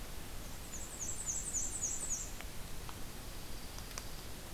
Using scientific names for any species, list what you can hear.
Mniotilta varia, Junco hyemalis